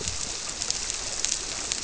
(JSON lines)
{"label": "biophony", "recorder": "SoundTrap 300"}